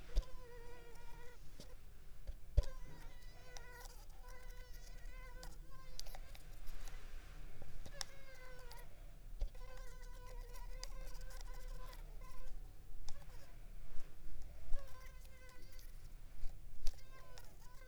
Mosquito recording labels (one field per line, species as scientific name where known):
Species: Culex pipiens complex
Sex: female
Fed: unfed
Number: one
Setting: cup